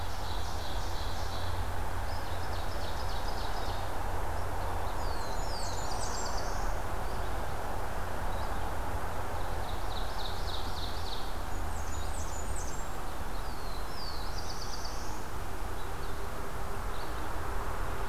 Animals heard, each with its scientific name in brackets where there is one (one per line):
Red-eyed Vireo (Vireo olivaceus)
Black-throated Blue Warbler (Setophaga caerulescens)
Blackburnian Warbler (Setophaga fusca)
Ovenbird (Seiurus aurocapilla)